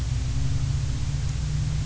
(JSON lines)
{"label": "anthrophony, boat engine", "recorder": "SoundTrap 300"}